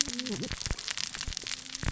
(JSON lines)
{"label": "biophony, cascading saw", "recorder": "SoundTrap 600 or HydroMoth"}